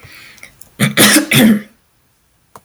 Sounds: Throat clearing